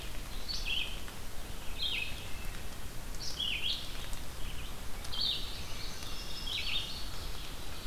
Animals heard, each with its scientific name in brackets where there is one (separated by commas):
Indigo Bunting (Passerina cyanea), Wood Thrush (Hylocichla mustelina), Red-eyed Vireo (Vireo olivaceus)